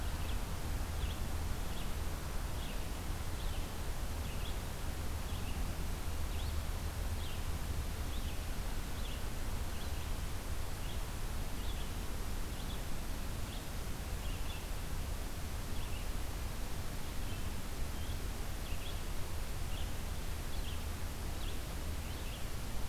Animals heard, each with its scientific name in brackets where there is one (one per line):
Red-eyed Vireo (Vireo olivaceus)